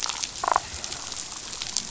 {"label": "biophony, damselfish", "recorder": "SoundTrap 500"}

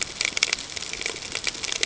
{"label": "ambient", "recorder": "HydroMoth"}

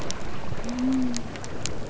{"label": "biophony", "recorder": "SoundTrap 300"}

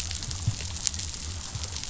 {"label": "biophony", "recorder": "SoundTrap 500"}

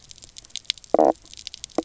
{"label": "biophony, knock croak", "recorder": "SoundTrap 300"}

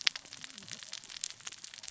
{"label": "biophony, cascading saw", "recorder": "SoundTrap 600 or HydroMoth"}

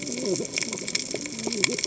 {"label": "biophony, cascading saw", "recorder": "HydroMoth"}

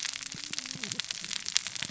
{"label": "biophony, cascading saw", "recorder": "SoundTrap 600 or HydroMoth"}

